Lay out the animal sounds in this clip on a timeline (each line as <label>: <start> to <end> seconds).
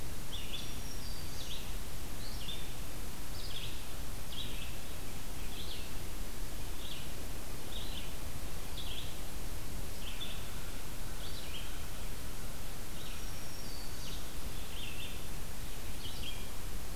Red-eyed Vireo (Vireo olivaceus): 0.0 to 17.0 seconds
Black-throated Green Warbler (Setophaga virens): 0.1 to 1.6 seconds
Black-throated Green Warbler (Setophaga virens): 12.9 to 14.4 seconds